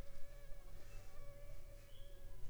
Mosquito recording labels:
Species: Anopheles funestus s.s.; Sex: female; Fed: unfed; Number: one; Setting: cup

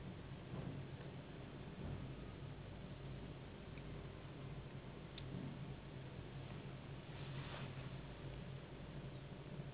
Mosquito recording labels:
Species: Anopheles gambiae s.s.; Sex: female; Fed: unfed; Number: one; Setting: insect culture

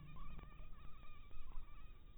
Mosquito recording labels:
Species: mosquito; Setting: cup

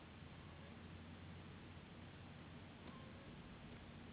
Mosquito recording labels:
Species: Anopheles gambiae s.s.; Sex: female; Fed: unfed; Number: one; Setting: insect culture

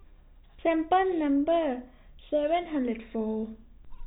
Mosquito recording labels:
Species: no mosquito; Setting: cup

